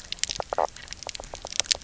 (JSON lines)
{"label": "biophony, knock croak", "recorder": "SoundTrap 300"}